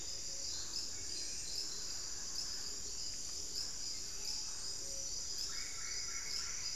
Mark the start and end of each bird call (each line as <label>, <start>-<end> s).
Plumbeous Antbird (Myrmelastes hyperythrus), 0.0-0.8 s
Buff-throated Saltator (Saltator maximus), 0.0-6.8 s
Gray-fronted Dove (Leptotila rufaxilla), 0.2-6.8 s
Gilded Barbet (Capito auratus), 0.6-6.8 s
Screaming Piha (Lipaugus vociferans), 4.3-4.6 s
Solitary Black Cacique (Cacicus solitarius), 5.4-6.8 s